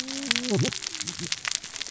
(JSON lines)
{"label": "biophony, cascading saw", "recorder": "SoundTrap 600 or HydroMoth"}